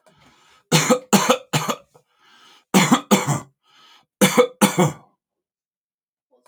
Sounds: Cough